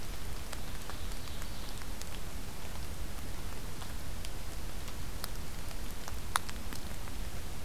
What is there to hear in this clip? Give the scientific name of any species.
Seiurus aurocapilla